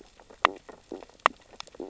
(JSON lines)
{"label": "biophony, stridulation", "recorder": "SoundTrap 600 or HydroMoth"}
{"label": "biophony, sea urchins (Echinidae)", "recorder": "SoundTrap 600 or HydroMoth"}